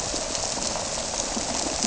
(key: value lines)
label: biophony
recorder: SoundTrap 300